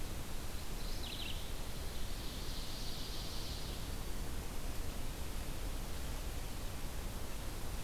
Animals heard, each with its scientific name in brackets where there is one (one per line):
Ovenbird (Seiurus aurocapilla)
Mourning Warbler (Geothlypis philadelphia)